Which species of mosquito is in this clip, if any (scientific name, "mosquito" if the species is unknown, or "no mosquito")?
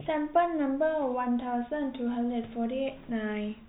no mosquito